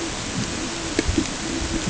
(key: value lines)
label: ambient
recorder: HydroMoth